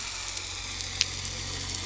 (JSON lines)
{"label": "anthrophony, boat engine", "recorder": "SoundTrap 300"}